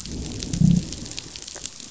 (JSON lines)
{"label": "biophony, growl", "recorder": "SoundTrap 500"}